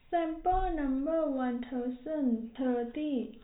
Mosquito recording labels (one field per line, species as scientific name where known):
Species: no mosquito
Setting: cup